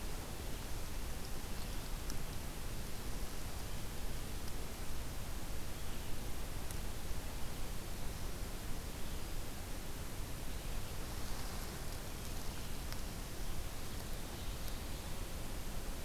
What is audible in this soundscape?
Ovenbird